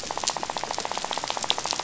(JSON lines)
{"label": "biophony, rattle", "recorder": "SoundTrap 500"}